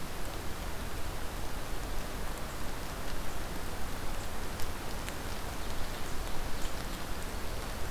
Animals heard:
Ovenbird (Seiurus aurocapilla), Black-throated Green Warbler (Setophaga virens)

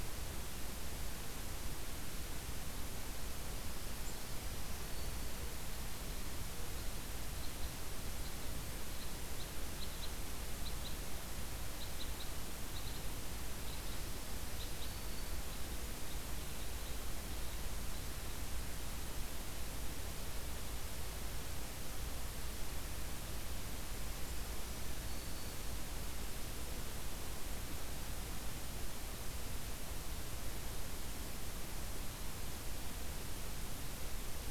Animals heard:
Black-throated Green Warbler (Setophaga virens), Red Crossbill (Loxia curvirostra)

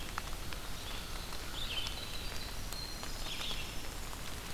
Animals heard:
Winter Wren (Troglodytes hiemalis), American Crow (Corvus brachyrhynchos), Red-eyed Vireo (Vireo olivaceus)

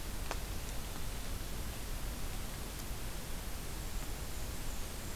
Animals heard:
Black-and-white Warbler (Mniotilta varia)

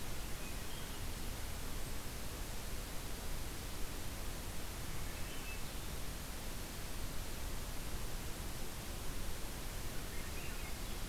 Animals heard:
Swainson's Thrush (Catharus ustulatus)

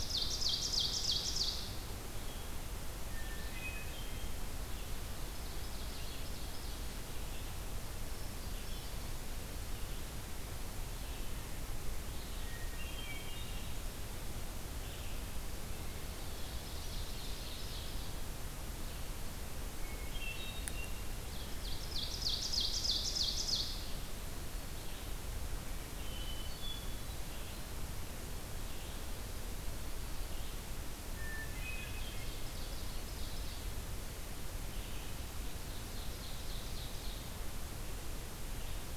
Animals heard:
Ovenbird (Seiurus aurocapilla), Blue-headed Vireo (Vireo solitarius), Hermit Thrush (Catharus guttatus)

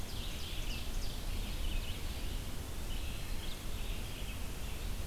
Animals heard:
Red-eyed Vireo (Vireo olivaceus), Eastern Wood-Pewee (Contopus virens), Ovenbird (Seiurus aurocapilla)

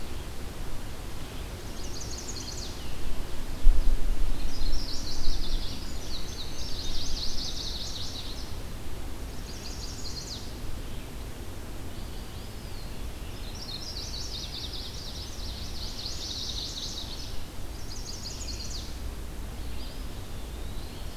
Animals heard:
Eastern Wood-Pewee (Contopus virens), Chestnut-sided Warbler (Setophaga pensylvanica), Indigo Bunting (Passerina cyanea)

